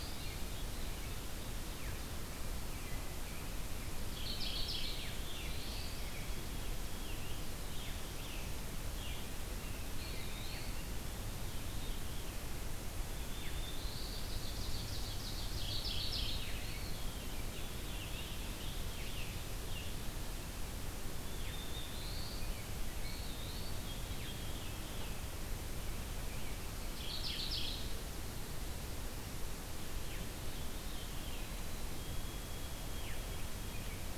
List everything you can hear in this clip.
Mourning Warbler, Black-throated Blue Warbler, Scarlet Tanager, Eastern Wood-Pewee, Veery, Ovenbird, White-throated Sparrow